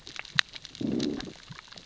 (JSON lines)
{"label": "biophony, growl", "recorder": "SoundTrap 600 or HydroMoth"}